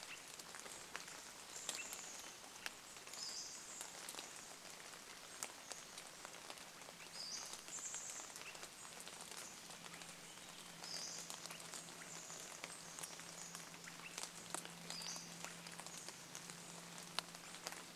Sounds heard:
Chestnut-backed Chickadee call, Pacific-slope Flycatcher call, Swainson's Thrush call, rain

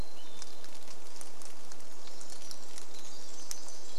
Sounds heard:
Pacific Wren song, rain, Hermit Thrush song

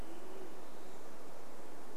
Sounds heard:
Western Wood-Pewee song, Band-tailed Pigeon call, Olive-sided Flycatcher call

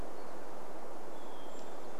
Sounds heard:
Brown Creeper call, Hermit Thrush song

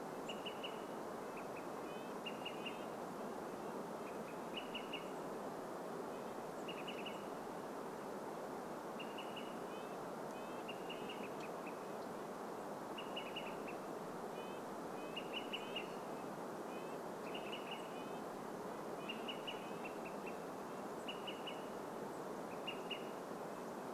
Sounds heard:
Red-breasted Nuthatch song, unidentified bird chip note, Olive-sided Flycatcher call

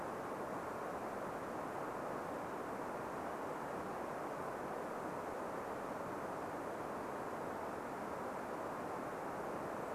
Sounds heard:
Golden-crowned Kinglet call

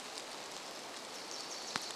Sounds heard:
Pacific Wren song, rain, Wilson's Warbler song

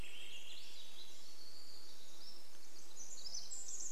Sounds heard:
Swainson's Thrush song, Golden-crowned Kinglet song, Pacific Wren song, warbler song, insect buzz

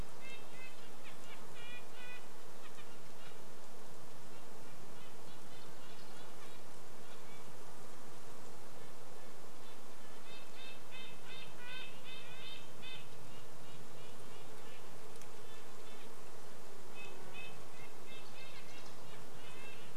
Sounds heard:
Red-breasted Nuthatch call, unidentified sound, Red-breasted Nuthatch song, insect buzz

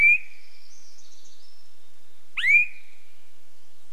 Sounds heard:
warbler song, Swainson's Thrush call

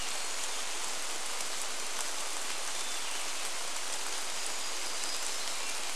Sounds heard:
Brown Creeper call, Hermit Thrush song, rain, warbler song

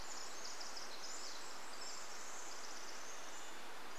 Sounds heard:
Varied Thrush song, Pacific Wren song

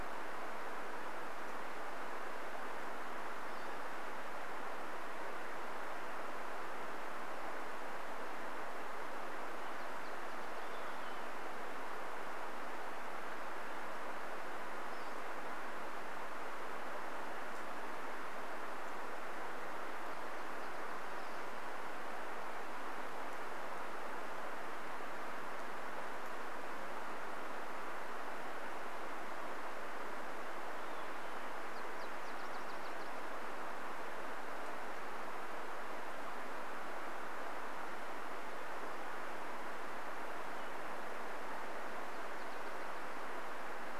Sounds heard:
Olive-sided Flycatcher song, Pacific-slope Flycatcher call, Nashville Warbler song

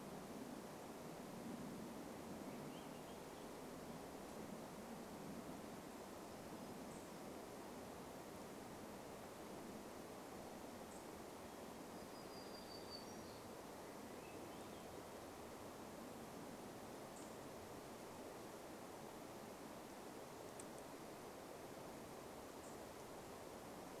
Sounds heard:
unidentified bird chip note, warbler song, Swainson's Thrush song

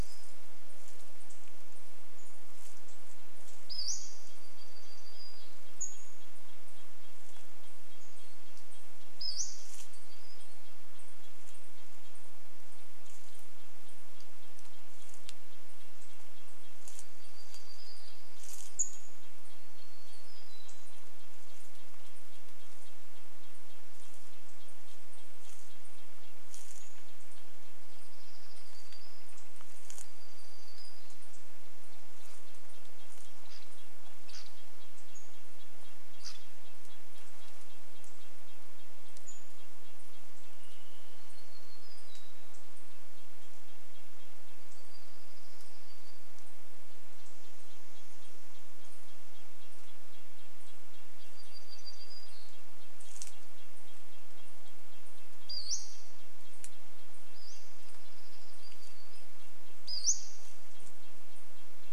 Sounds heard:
Dark-eyed Junco song, Pacific-slope Flycatcher call, warbler song, Red-breasted Nuthatch song, unidentified bird chip note

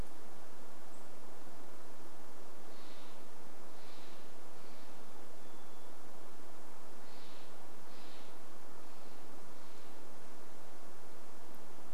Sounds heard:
unidentified bird chip note, Varied Thrush song, Steller's Jay call

